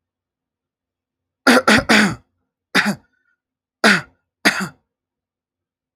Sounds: Throat clearing